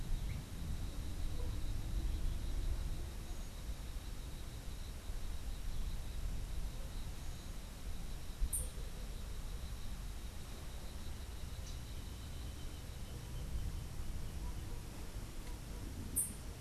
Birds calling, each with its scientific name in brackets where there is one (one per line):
unidentified bird